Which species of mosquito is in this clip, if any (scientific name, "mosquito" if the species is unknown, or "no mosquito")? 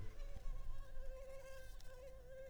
Culex pipiens complex